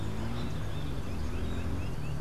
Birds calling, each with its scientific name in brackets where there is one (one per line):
Lineated Woodpecker (Dryocopus lineatus)